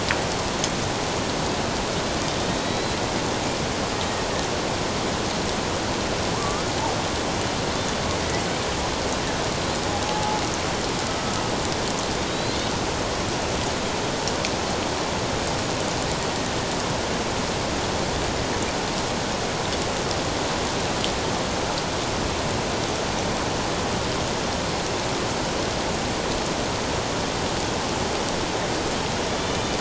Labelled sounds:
2.4	3.0	killer whale, Bigg's (transient), 3.6 to 4.1 kHz
6.3	6.7	killer whale, Bigg's (transient), 0.88 to 1.3 kHz
10.0	10.4	killer whale, Bigg's (transient), 0.78 to 0.91 kHz
12.3	12.7	killer whale, Bigg's (transient), 3.7 to 4.5 kHz

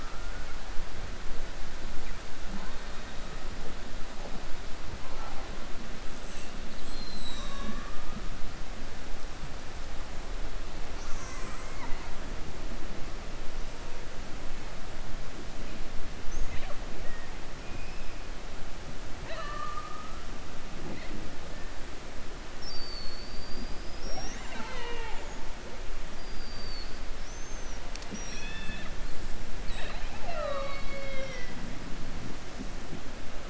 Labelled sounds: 19.1	20.1	killer whale, 0.57 to 4.3 kHz
26.1	27.8	killer whale, 4.3 to 6.4 kHz

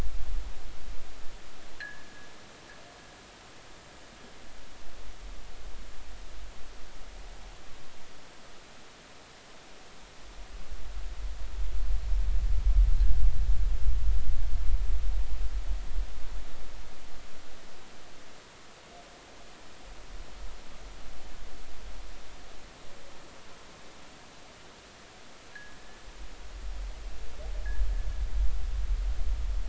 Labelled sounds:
1.8	2.3	fishing gear, 1.5 to 1.9 kHz
25.5	25.8	fishing gear, 1.6 to 1.9 kHz

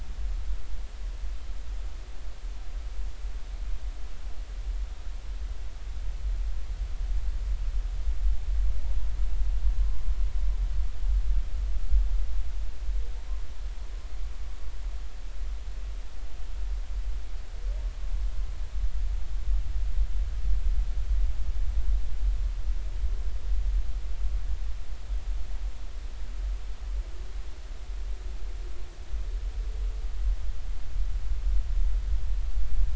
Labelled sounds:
9.8	10.0	humpback whale, 0.99 to 1.1 kHz

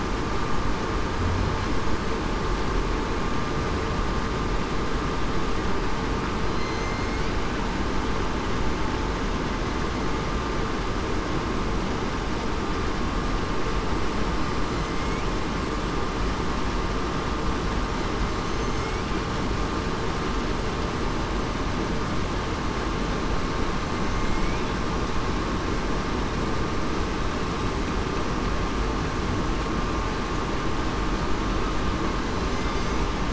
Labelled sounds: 6.5	7.2	killer whale, southern resident, 2.0 to 6.5 kHz
18.4	18.9	killer whale, southern resident, 6.2 to 6.4 kHz
24.1	24.6	killer whale, southern resident, 2.1 to 2.5 kHz

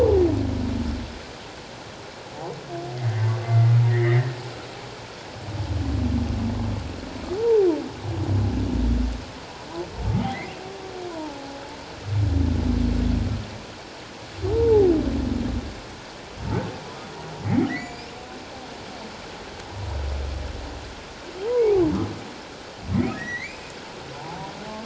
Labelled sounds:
3.9	4.3	humpback whale, 1.7 to 2.2 kHz
7.4	7.7	humpback whale, 0.78 to 0.97 kHz
11.1	11.6	humpback whale, 0.78 to 1.1 kHz
14.5	14.9	humpback whale, 0.78 to 0.97 kHz
17.4	18.1	humpback whale, 1.8 to 2.5 kHz
21.4	21.8	humpback whale, 0.78 to 2.6 kHz
23.2	23.6	humpback whale, 1.8 to 6.0 kHz
24.2	24.5	humpback whale, 0.78 to 1.0 kHz

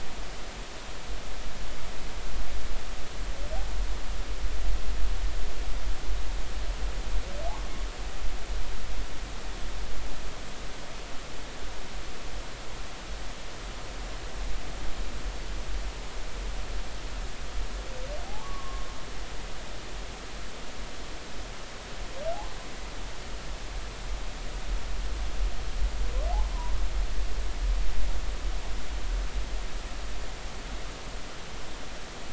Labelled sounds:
18.2	18.9	humpback whale, 0.80 to 1.2 kHz

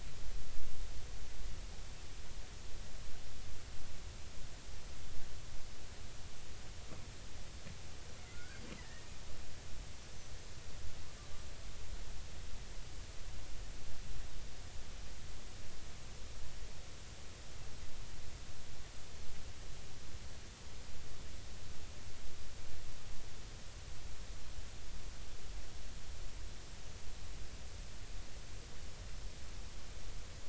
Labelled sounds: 8.3	9.1	killer whale, Bigg's (transient), 1.3 to 2.1 kHz

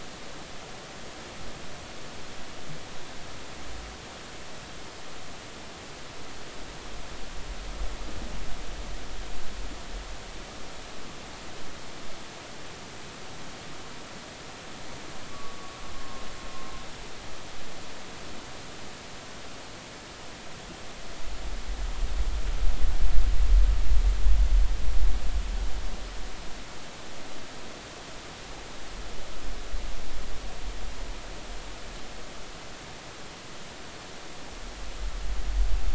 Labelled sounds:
15.3	15.6	humpback whale, 1.1 to 1.2 kHz
16.9	17.2	humpback whale, 1.06 to 1.12 kHz

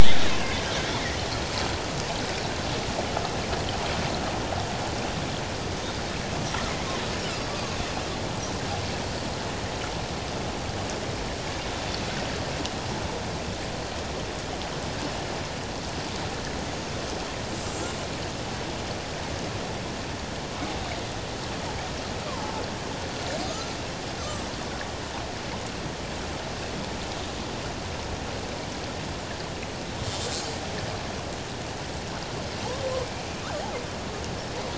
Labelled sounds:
0.9	1.4	killer whale, Bigg's (transient), 1.8 to 4.4 kHz
22.3	22.6	killer whale, Bigg's (transient), 0.81 to 1.2 kHz
23.5	23.8	killer whale, Bigg's (transient), 1.2 to 1.4 kHz

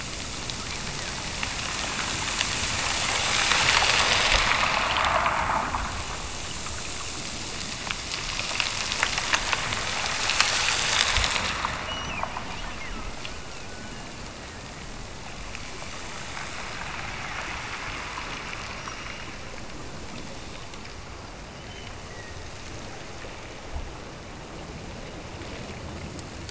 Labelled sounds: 11.8	13.1	killer whale, Bigg's (transient), Gulf of Alaska transient, 1.6 to 2.9 kHz
21.5	22.4	killer whale, Bigg's (transient), Gulf of Alaska transient, 1.7 to 3.2 kHz

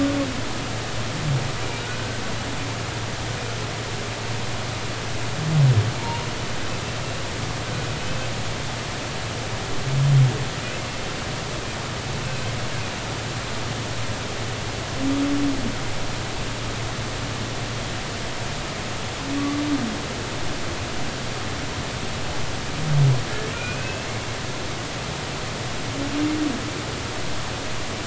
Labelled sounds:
1.8	2.2	humpback whale, 1.4 to 1.6 kHz
6.0	6.3	humpback whale, 0.86 to 0.99 kHz
23.5	24.1	humpback whale, 2.3 to 2.7 kHz

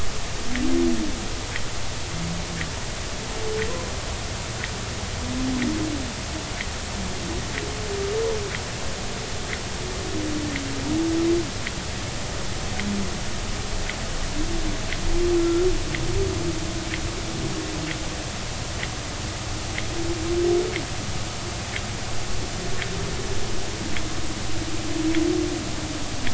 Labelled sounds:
15.4	15.7	humpback whale, 1.3 to 1.4 kHz

